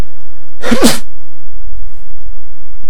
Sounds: Sneeze